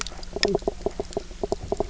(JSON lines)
{"label": "biophony, knock croak", "recorder": "SoundTrap 300"}